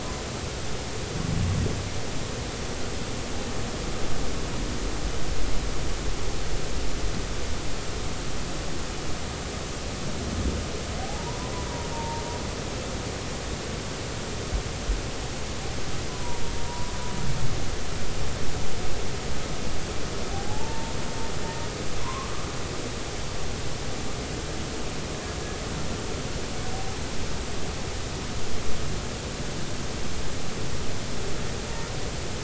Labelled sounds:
11.0	11.5	humpback whale, 0.80 to 1.1 kHz
11.9	12.2	humpback whale, 0.86 to 0.96 kHz
16.1	16.9	humpback whale, 0.90 to 1.0 kHz
20.3	20.9	humpback whale, 0.80 to 0.96 kHz
22.0	22.3	humpback whale, 0.93 to 1.2 kHz

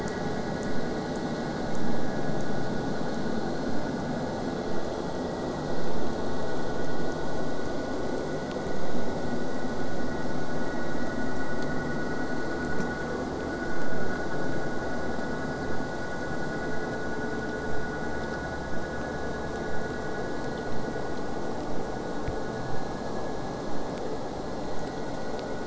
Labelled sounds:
20.7	25.6	vessel noise, 0 to 8.0 kHz

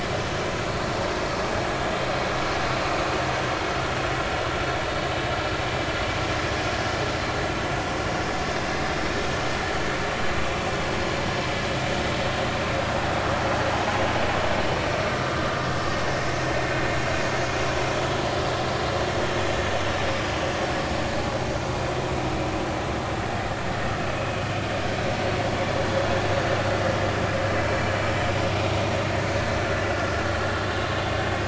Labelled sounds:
29.9	30.1	vessel noise, 1.3 to 1.5 kHz

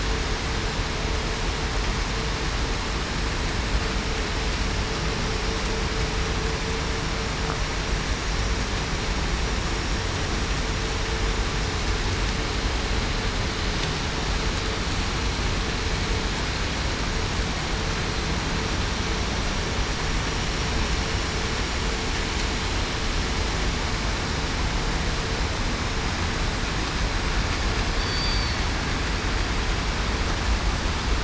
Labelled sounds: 28.0	28.7	killer whale, southern resident, 4.3 to 4.7 kHz

